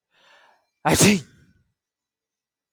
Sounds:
Sneeze